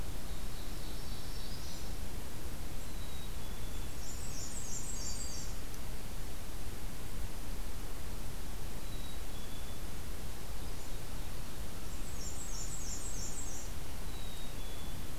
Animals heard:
Black-throated Green Warbler (Setophaga virens), Black-and-white Warbler (Mniotilta varia), Black-capped Chickadee (Poecile atricapillus), Ovenbird (Seiurus aurocapilla)

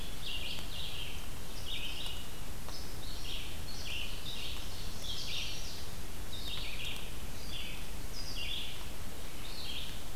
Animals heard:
Ovenbird (Seiurus aurocapilla), Red-eyed Vireo (Vireo olivaceus)

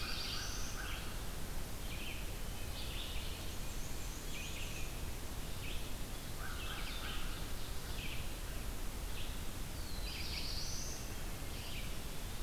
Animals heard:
Black-and-white Warbler (Mniotilta varia), American Crow (Corvus brachyrhynchos), Black-throated Blue Warbler (Setophaga caerulescens), Wood Thrush (Hylocichla mustelina), Eastern Wood-Pewee (Contopus virens), Red-eyed Vireo (Vireo olivaceus)

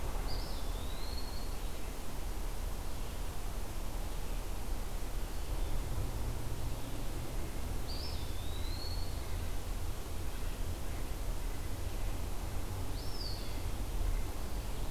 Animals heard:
Eastern Wood-Pewee (Contopus virens)

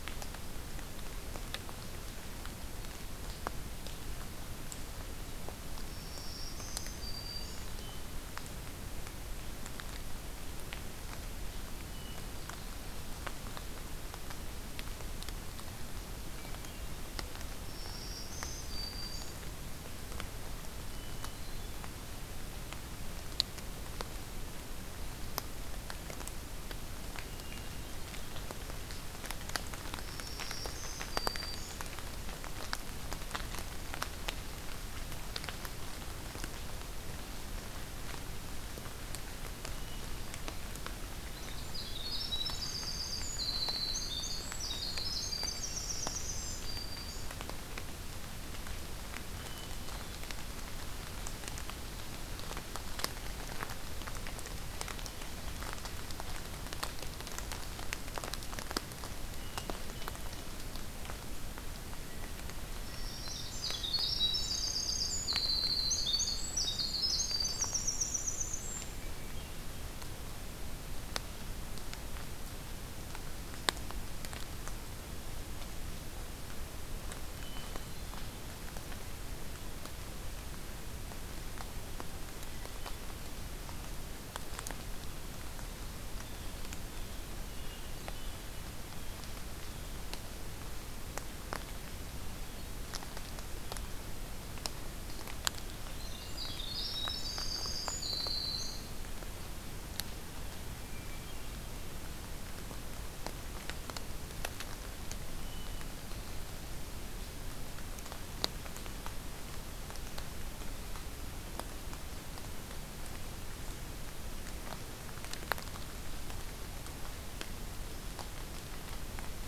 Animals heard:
Blue Jay (Cyanocitta cristata), Winter Wren (Troglodytes hiemalis), Hermit Thrush (Catharus guttatus), Black-throated Green Warbler (Setophaga virens)

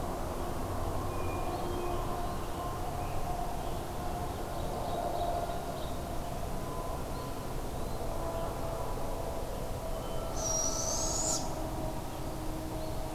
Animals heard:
Scarlet Tanager (Piranga olivacea), Ovenbird (Seiurus aurocapilla), Hermit Thrush (Catharus guttatus), Barred Owl (Strix varia)

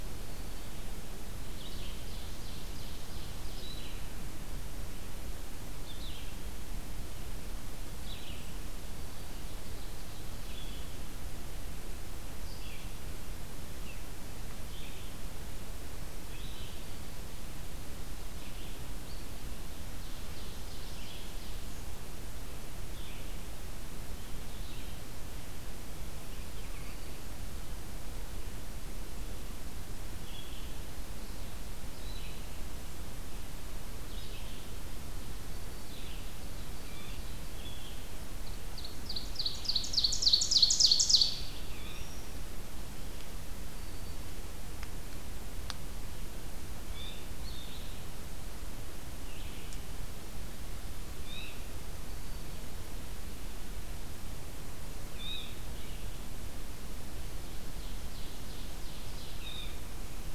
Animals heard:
unidentified call, Ovenbird (Seiurus aurocapilla), Black-throated Green Warbler (Setophaga virens), Red-eyed Vireo (Vireo olivaceus)

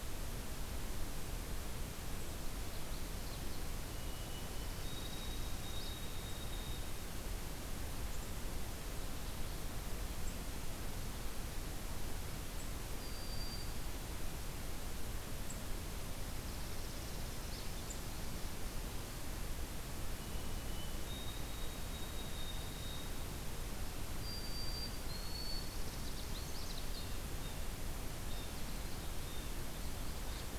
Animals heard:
Blue Jay (Cyanocitta cristata), Canada Warbler (Cardellina canadensis), White-throated Sparrow (Zonotrichia albicollis), Northern Parula (Setophaga americana), Ovenbird (Seiurus aurocapilla)

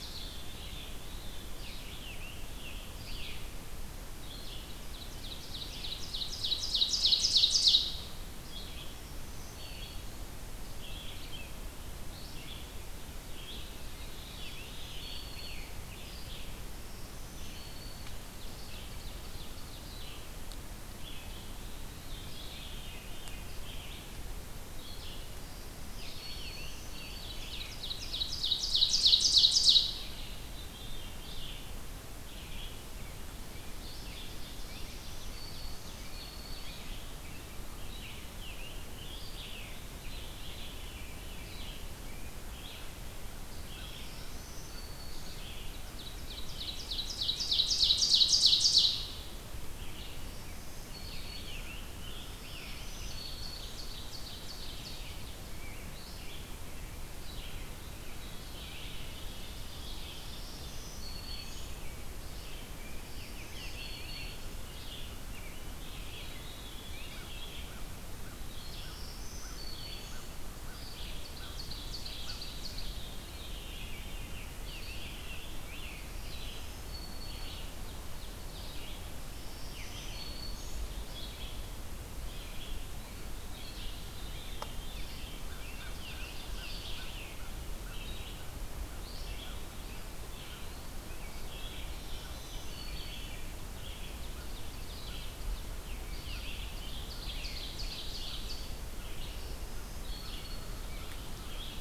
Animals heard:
Red-eyed Vireo (Vireo olivaceus), Tufted Titmouse (Baeolophus bicolor), Black-throated Green Warbler (Setophaga virens), Ovenbird (Seiurus aurocapilla), Eastern Wood-Pewee (Contopus virens), Scarlet Tanager (Piranga olivacea), Veery (Catharus fuscescens), American Crow (Corvus brachyrhynchos)

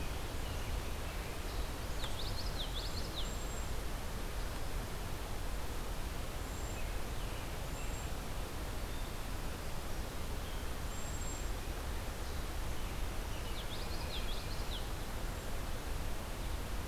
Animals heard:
Cedar Waxwing (Bombycilla cedrorum), American Robin (Turdus migratorius), Common Yellowthroat (Geothlypis trichas)

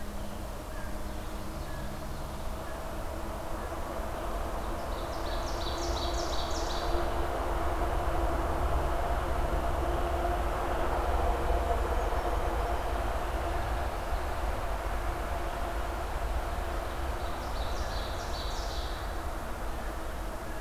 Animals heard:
American Crow (Corvus brachyrhynchos), Brown Creeper (Certhia americana), Ovenbird (Seiurus aurocapilla)

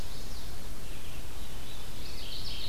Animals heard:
Red-eyed Vireo (Vireo olivaceus), Mourning Warbler (Geothlypis philadelphia), Chestnut-sided Warbler (Setophaga pensylvanica)

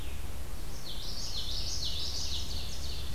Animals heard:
Common Yellowthroat (Geothlypis trichas), Red-eyed Vireo (Vireo olivaceus), Ovenbird (Seiurus aurocapilla)

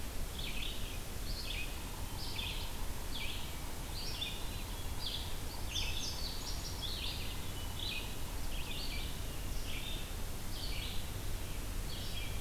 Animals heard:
Yellow-bellied Sapsucker (Sphyrapicus varius), Red-eyed Vireo (Vireo olivaceus), Indigo Bunting (Passerina cyanea)

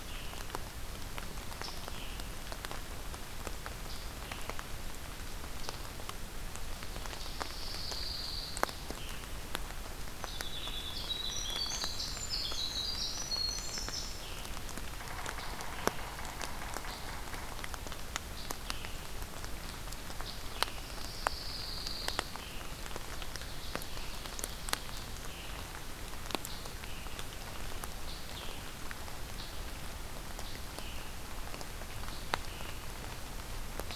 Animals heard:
Scarlet Tanager (Piranga olivacea), Winter Wren (Troglodytes hiemalis), Ovenbird (Seiurus aurocapilla), Pine Warbler (Setophaga pinus), Yellow-bellied Sapsucker (Sphyrapicus varius)

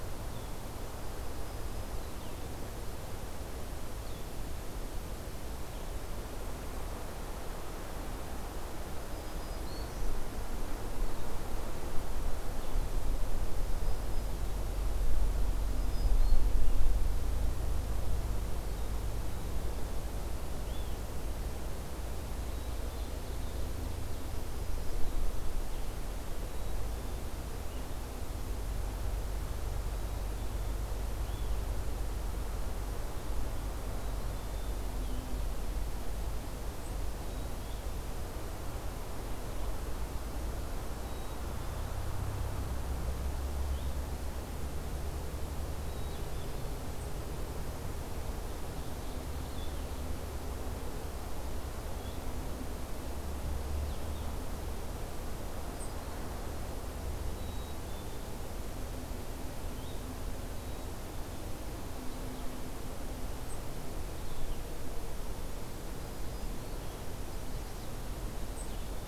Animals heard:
Black-throated Green Warbler (Setophaga virens), Ovenbird (Seiurus aurocapilla), Blue-headed Vireo (Vireo solitarius), Black-capped Chickadee (Poecile atricapillus)

